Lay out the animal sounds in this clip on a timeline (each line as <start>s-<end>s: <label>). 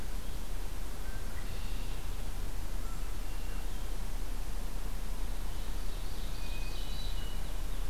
1.0s-2.1s: Red-winged Blackbird (Agelaius phoeniceus)
2.7s-3.9s: Red-winged Blackbird (Agelaius phoeniceus)
5.4s-7.0s: Ovenbird (Seiurus aurocapilla)
6.4s-7.5s: Hermit Thrush (Catharus guttatus)